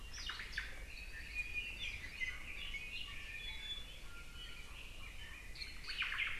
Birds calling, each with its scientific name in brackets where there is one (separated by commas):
Omao (Myadestes obscurus), Iiwi (Drepanis coccinea), Red-billed Leiothrix (Leiothrix lutea)